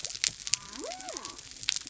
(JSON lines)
{"label": "biophony", "recorder": "SoundTrap 300"}